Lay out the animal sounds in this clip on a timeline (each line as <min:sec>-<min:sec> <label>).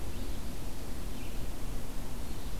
0:00.0-0:02.6 Red-eyed Vireo (Vireo olivaceus)